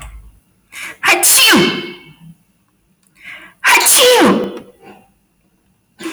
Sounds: Sneeze